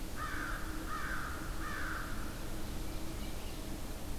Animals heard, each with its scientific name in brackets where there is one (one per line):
American Crow (Corvus brachyrhynchos)
Tufted Titmouse (Baeolophus bicolor)